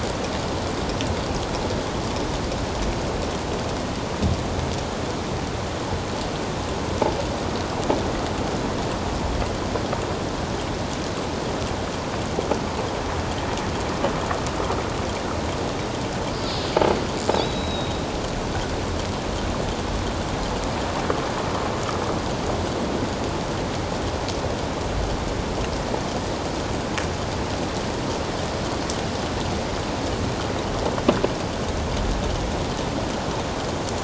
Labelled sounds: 17.3	18.0	killer whale, offshore, 3.3 to 4.0 kHz

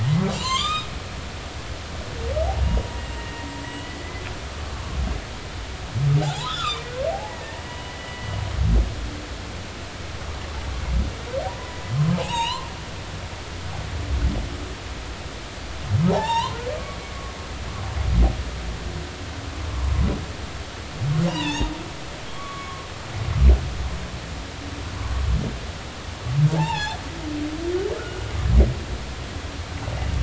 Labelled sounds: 0.3	0.9	humpback whale, 0.83 to 7.6 kHz
3.2	4.2	humpback whale, 1.8 to 3.0 kHz
6.2	8.4	humpback whale, 0.80 to 4.1 kHz
11.5	12.7	humpback whale, 0.80 to 7.8 kHz
16.1	16.6	humpback whale, 0.80 to 7.7 kHz
21.3	21.7	humpback whale, 0.80 to 6.7 kHz
22.3	22.8	humpback whale, 1.0 to 3.4 kHz
26.6	27.0	humpback whale, 0.80 to 5.6 kHz
28.0	28.2	humpback whale, 1.2 to 1.5 kHz

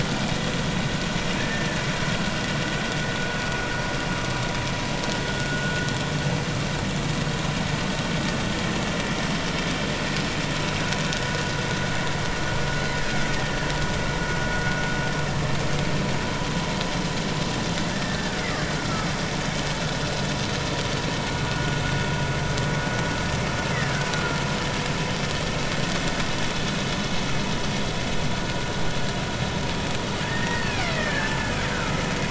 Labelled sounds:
1.4	1.7	killer whale, Bigg's (transient), 1.6 to 1.9 kHz
5.5	5.9	vessel noise, 1.4 to 1.6 kHz
17.9	19.1	killer whale, Bigg's (transient), 1.2 to 1.9 kHz
21.5	21.8	vessel noise, 1.4 to 1.5 kHz
23.7	24.4	killer whale, Bigg's (transient), 1.3 to 2.1 kHz
30.2	31.3	killer whale, Bigg's (transient), 1.5 to 2.7 kHz

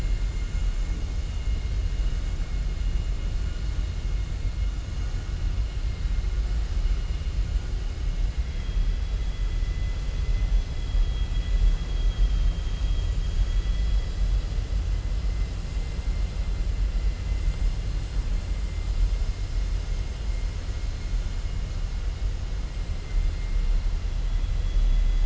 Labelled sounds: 11.0	11.7	vessel noise, 2.5 to 4.0 kHz

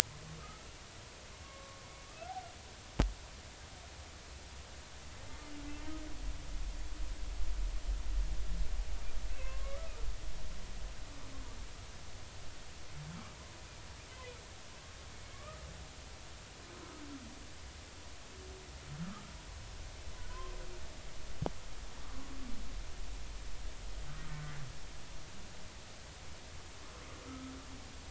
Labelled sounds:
0.4	0.7	humpback whale, 1.2 to 1.4 kHz
1.4	1.8	humpback whale, 1.0 to 1.2 kHz
9.3	9.8	humpback whale, 0.99 to 2.7 kHz
15.3	15.6	humpback whale, 1.1 to 1.3 kHz
19.0	19.3	humpback whale, 1.1 to 1.4 kHz
22.0	22.3	humpback whale, 1.1 to 1.3 kHz
27.3	27.5	humpback whale, 1.2 to 1.4 kHz

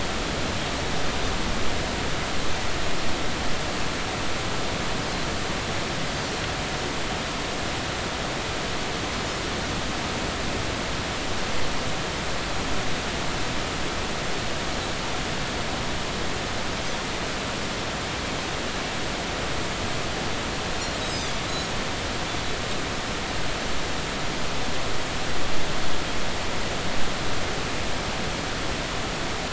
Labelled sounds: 20.8	21.7	Pacific white-sided dolphin, 4.1 to 6.8 kHz
22.0	22.4	Pacific white-sided dolphin, 3.3 to 4.0 kHz

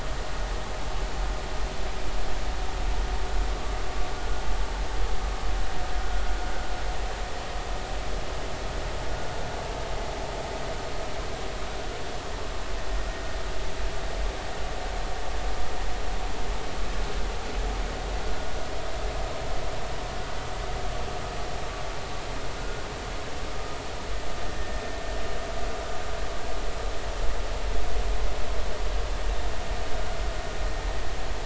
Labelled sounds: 24.4	24.8	vessel noise, 1.7 to 1.9 kHz

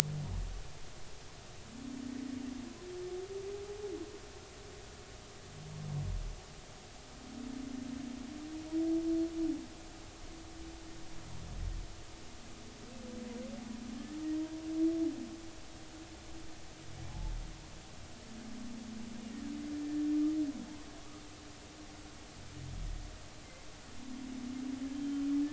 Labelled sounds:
19.7	20.1	humpback whale, 1.7 to 1.8 kHz
24.9	25.2	humpback whale, 3.0 to 3.2 kHz

